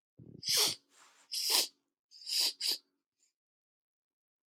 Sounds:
Sniff